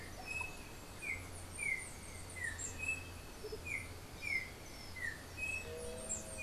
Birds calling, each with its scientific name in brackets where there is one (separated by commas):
Russet-backed Oropendola (Psarocolius angustifrons), Andean Motmot (Momotus aequatorialis), White-tipped Dove (Leptotila verreauxi), Yellow-backed Oriole (Icterus chrysater), Chestnut-capped Brushfinch (Arremon brunneinucha)